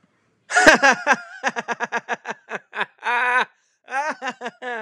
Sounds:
Laughter